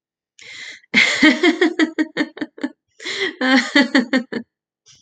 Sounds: Laughter